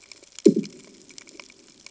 {"label": "anthrophony, bomb", "recorder": "HydroMoth"}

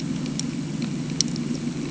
{"label": "anthrophony, boat engine", "recorder": "HydroMoth"}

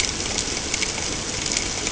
{"label": "ambient", "recorder": "HydroMoth"}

